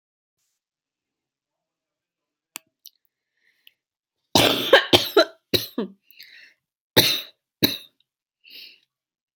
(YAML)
expert_labels:
- quality: good
  cough_type: dry
  dyspnea: false
  wheezing: false
  stridor: false
  choking: false
  congestion: true
  nothing: false
  diagnosis: upper respiratory tract infection
  severity: mild
age: 28
gender: female
respiratory_condition: false
fever_muscle_pain: false
status: COVID-19